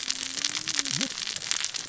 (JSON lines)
{"label": "biophony, cascading saw", "recorder": "SoundTrap 600 or HydroMoth"}